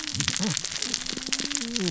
{"label": "biophony, cascading saw", "recorder": "SoundTrap 600 or HydroMoth"}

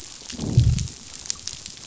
{"label": "biophony, growl", "recorder": "SoundTrap 500"}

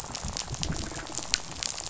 {"label": "biophony, rattle", "recorder": "SoundTrap 500"}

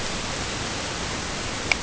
{"label": "ambient", "recorder": "HydroMoth"}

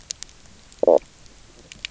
{"label": "biophony, knock croak", "recorder": "SoundTrap 300"}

